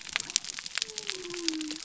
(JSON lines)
{"label": "biophony", "recorder": "SoundTrap 300"}